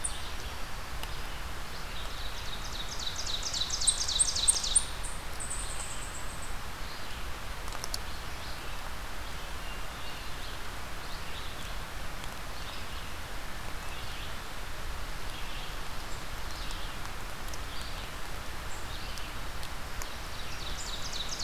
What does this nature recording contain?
Red-eyed Vireo, Ovenbird, unidentified call